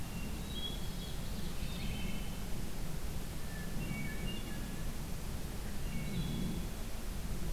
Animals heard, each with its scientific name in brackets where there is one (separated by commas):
Wood Thrush (Hylocichla mustelina), Hermit Thrush (Catharus guttatus), Common Yellowthroat (Geothlypis trichas)